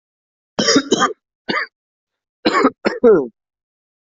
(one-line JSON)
{"expert_labels": [{"quality": "good", "cough_type": "dry", "dyspnea": false, "wheezing": false, "stridor": false, "choking": false, "congestion": true, "nothing": false, "diagnosis": "upper respiratory tract infection", "severity": "mild"}], "age": 28, "gender": "male", "respiratory_condition": false, "fever_muscle_pain": false, "status": "COVID-19"}